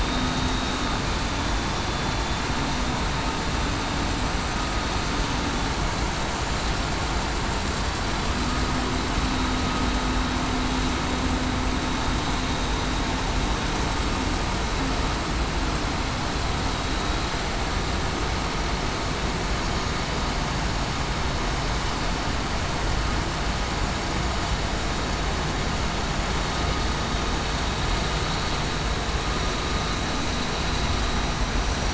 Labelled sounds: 0.0	0.8	vessel noise, 3.6 to 3.8 kHz

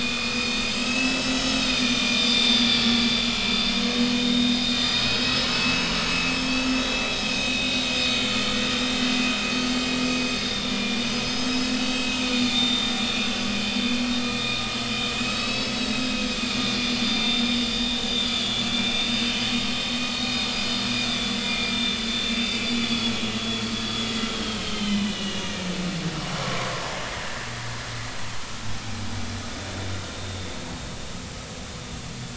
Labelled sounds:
0.0	8.8	vessel noise, 1.9 to 7.9 kHz
10.4	12.9	vessel noise, 2.1 to 6.4 kHz
15.2	17.5	vessel noise, 2.5 to 6.3 kHz
18.2	23.6	vessel noise, 2.0 to 7.2 kHz
24.2	25.5	vessel noise, 2.0 to 4.5 kHz
26.4	26.7	vessel noise, 0.96 to 1.2 kHz
29.7	30.4	vessel noise, 3.5 to 3.7 kHz

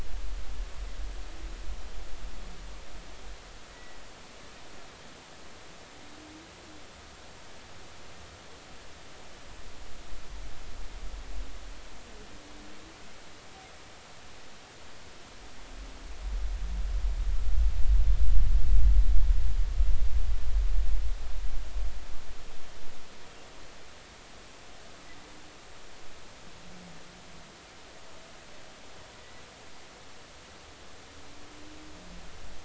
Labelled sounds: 3.7	4.0	humpback whale, 1.9 to 2.0 kHz

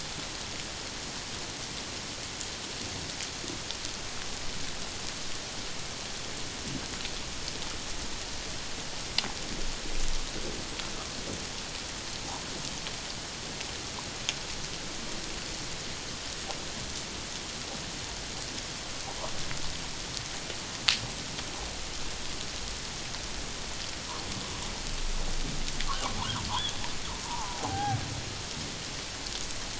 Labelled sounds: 25.9	26.2	humpback whale, 0.91 to 1.6 kHz
26.5	28.0	humpback whale, 0.78 to 3.7 kHz

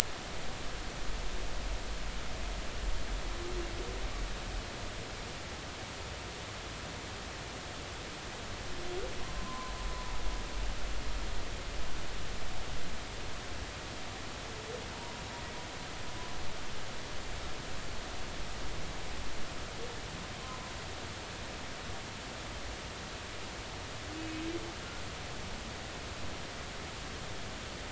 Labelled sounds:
9.2	9.7	humpback whale, 0.96 to 1.1 kHz
24.2	24.4	humpback whale, 2.5 to 2.6 kHz

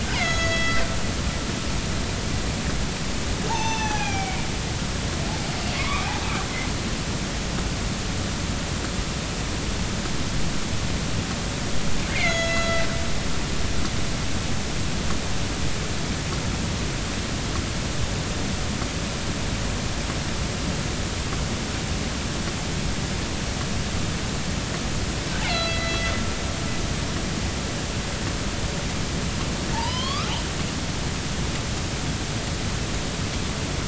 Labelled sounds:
0.1	0.9	killer whale, northern resident, A clan, AB subclan, B01 pod, call N01ii, 1.3 to 6.8 kHz
3.5	4.4	killer whale, northern resident, A clan, AB subclan, B01 pod, call N18, 0.80 to 6.3 kHz
5.8	6.1	killer whale, northern resident, 0.96 to 2.5 kHz
12.1	12.8	killer whale, northern resident, A clan, AB subclan, B01 pod, call N01ii, 1.3 to 6.8 kHz
25.4	26.1	killer whale, northern resident, A clan, AB subclan, B01 pod, call N01ii, 1.3 to 4.0 kHz
29.7	30.3	killer whale, northern resident, A clan, AB subclan, B01 pod, call N16, 0.80 to 3.7 kHz

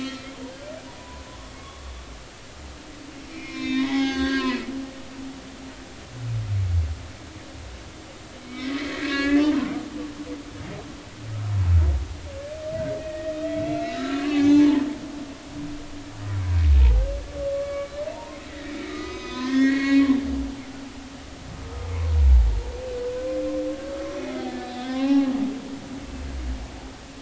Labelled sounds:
0.9	1.8	humpback whale, 0.86 to 1.2 kHz
3.3	4.8	humpback whale, 0.80 to 6.8 kHz
8.4	9.7	humpback whale, 0.83 to 2.7 kHz
13.0	14.7	humpback whale, 0.80 to 4.0 kHz
16.8	17.1	humpback whale, 0.80 to 0.99 kHz
17.6	20.1	humpback whale, 0.86 to 6.4 kHz
21.6	21.9	humpback whale, 1.1 to 1.3 kHz
24.2	25.3	humpback whale, 0.80 to 3.8 kHz

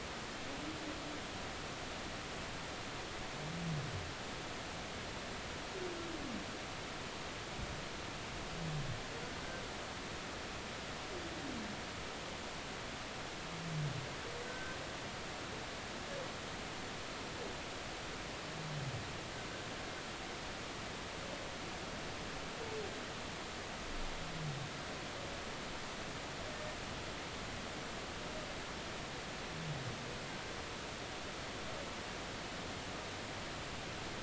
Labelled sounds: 14.4	14.8	humpback whale, 1.5 to 1.6 kHz

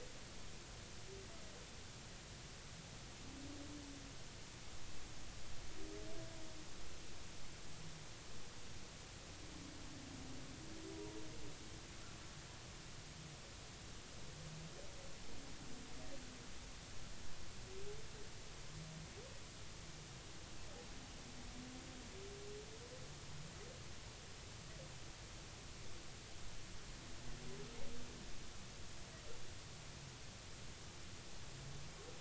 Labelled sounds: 10.9	11.2	humpback whale, 0.90 to 0.99 kHz

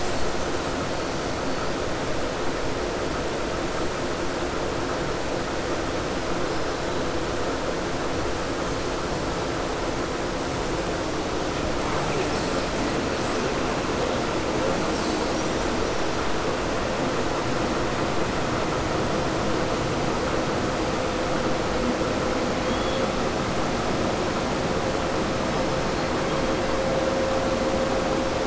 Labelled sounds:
22.6	23.0	killer whale, southern resident, 3.2 to 3.8 kHz

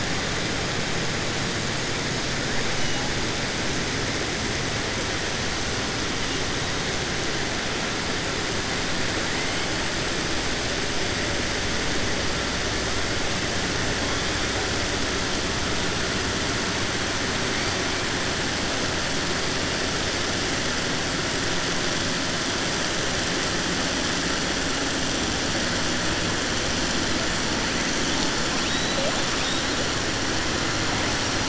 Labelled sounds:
28.6	29.1	killer whale, southern resident, 2.7 to 4.3 kHz

